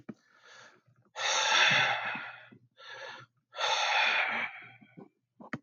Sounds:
Sigh